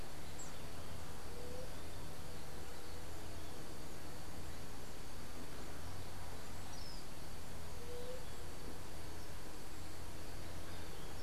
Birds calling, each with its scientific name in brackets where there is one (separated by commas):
White-tipped Dove (Leptotila verreauxi)